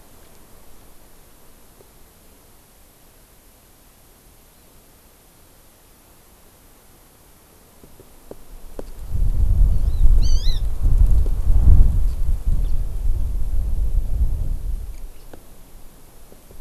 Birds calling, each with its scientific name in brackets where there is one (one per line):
Hawaii Amakihi (Chlorodrepanis virens)